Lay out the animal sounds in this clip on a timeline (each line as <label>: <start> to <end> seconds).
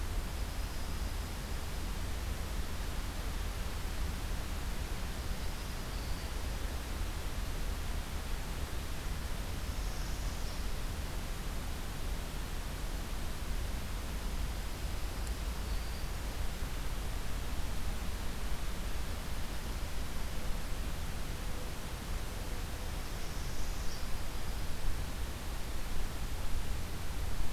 Dark-eyed Junco (Junco hyemalis): 0.0 to 2.0 seconds
Dark-eyed Junco (Junco hyemalis): 4.9 to 6.7 seconds
Black-throated Green Warbler (Setophaga virens): 5.7 to 6.5 seconds
Northern Parula (Setophaga americana): 9.3 to 10.9 seconds
Dark-eyed Junco (Junco hyemalis): 14.1 to 15.8 seconds
Black-throated Green Warbler (Setophaga virens): 15.4 to 16.2 seconds
Northern Parula (Setophaga americana): 22.8 to 24.8 seconds